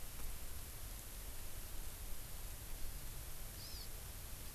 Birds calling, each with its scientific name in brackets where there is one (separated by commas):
Hawaii Amakihi (Chlorodrepanis virens)